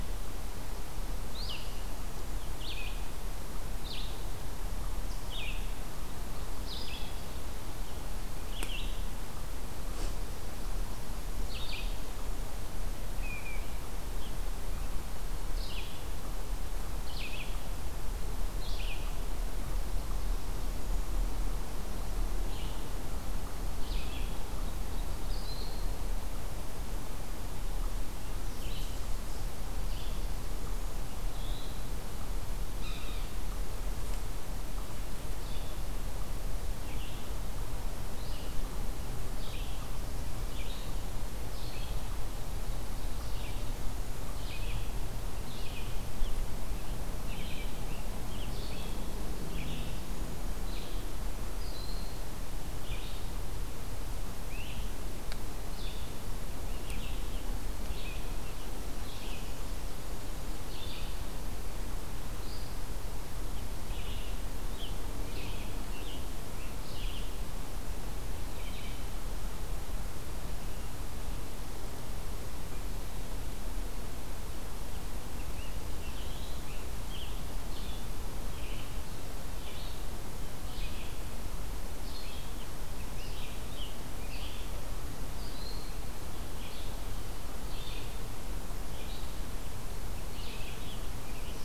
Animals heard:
Ovenbird (Seiurus aurocapilla), Blue Jay (Cyanocitta cristata), Eastern Chipmunk (Tamias striatus), Red-eyed Vireo (Vireo olivaceus), Scarlet Tanager (Piranga olivacea), Yellow-bellied Sapsucker (Sphyrapicus varius)

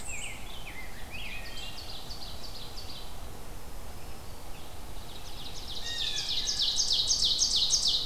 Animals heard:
Black-throated Green Warbler (Setophaga virens), Rose-breasted Grosbeak (Pheucticus ludovicianus), Ovenbird (Seiurus aurocapilla), Wood Thrush (Hylocichla mustelina), Blue Jay (Cyanocitta cristata)

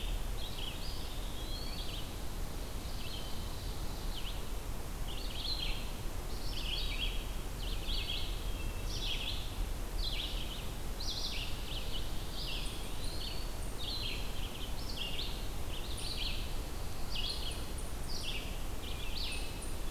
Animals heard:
Red-eyed Vireo (Vireo olivaceus), Eastern Wood-Pewee (Contopus virens), Hermit Thrush (Catharus guttatus), unidentified call, Ovenbird (Seiurus aurocapilla)

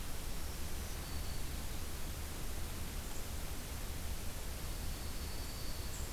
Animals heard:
Black-throated Green Warbler (Setophaga virens), Broad-winged Hawk (Buteo platypterus)

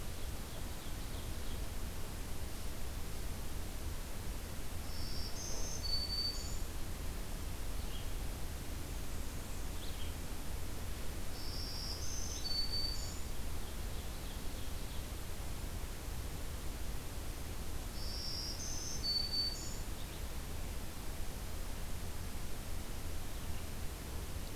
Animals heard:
Black-throated Green Warbler (Setophaga virens), Red-eyed Vireo (Vireo olivaceus), Ovenbird (Seiurus aurocapilla), Blackburnian Warbler (Setophaga fusca)

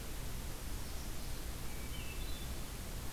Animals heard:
Magnolia Warbler (Setophaga magnolia), Hermit Thrush (Catharus guttatus)

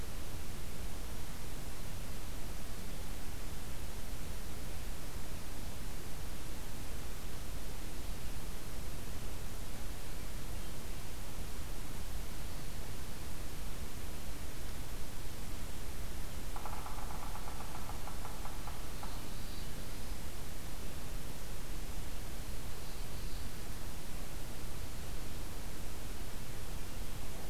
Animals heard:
Black-throated Blue Warbler (Setophaga caerulescens), Yellow-bellied Sapsucker (Sphyrapicus varius)

